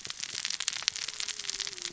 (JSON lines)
{"label": "biophony, cascading saw", "recorder": "SoundTrap 600 or HydroMoth"}